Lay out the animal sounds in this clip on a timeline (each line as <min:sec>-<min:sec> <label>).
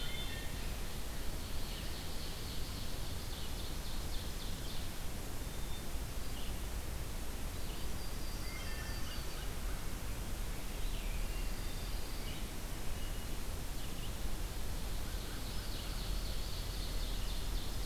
0:00.0-0:00.7 Wood Thrush (Hylocichla mustelina)
0:00.0-0:17.9 Red-eyed Vireo (Vireo olivaceus)
0:00.9-0:05.0 Ovenbird (Seiurus aurocapilla)
0:05.4-0:06.4 Hermit Thrush (Catharus guttatus)
0:07.3-0:09.5 Yellow-rumped Warbler (Setophaga coronata)
0:08.2-0:09.4 Wood Thrush (Hylocichla mustelina)
0:08.8-0:09.9 American Crow (Corvus brachyrhynchos)
0:11.1-0:12.5 Pine Warbler (Setophaga pinus)
0:14.4-0:17.9 Ovenbird (Seiurus aurocapilla)